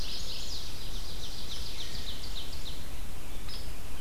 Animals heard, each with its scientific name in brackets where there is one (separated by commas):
Red-eyed Vireo (Vireo olivaceus), Hairy Woodpecker (Dryobates villosus), Chestnut-sided Warbler (Setophaga pensylvanica), Ovenbird (Seiurus aurocapilla), Mourning Warbler (Geothlypis philadelphia)